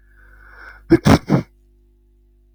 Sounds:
Sneeze